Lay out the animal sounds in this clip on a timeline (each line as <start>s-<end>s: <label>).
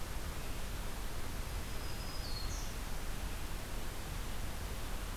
1.4s-3.0s: Black-throated Green Warbler (Setophaga virens)